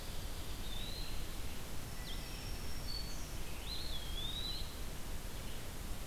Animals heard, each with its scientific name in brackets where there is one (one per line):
Red-eyed Vireo (Vireo olivaceus)
Black-throated Green Warbler (Setophaga virens)
Eastern Wood-Pewee (Contopus virens)